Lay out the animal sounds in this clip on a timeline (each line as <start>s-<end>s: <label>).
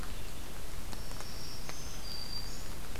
1.0s-2.8s: Black-throated Green Warbler (Setophaga virens)